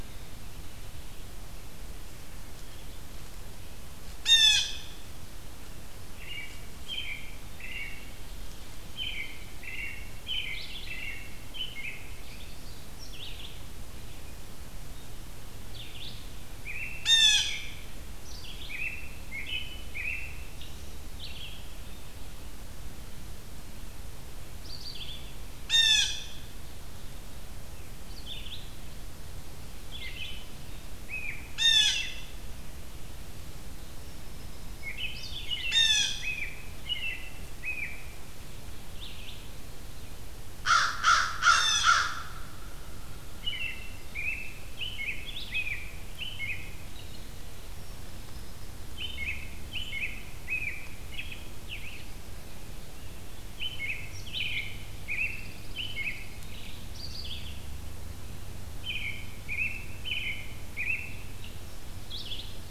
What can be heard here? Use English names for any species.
Blue Jay, American Robin, Red-eyed Vireo, American Crow, Pine Warbler